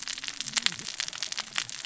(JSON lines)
{"label": "biophony, cascading saw", "recorder": "SoundTrap 600 or HydroMoth"}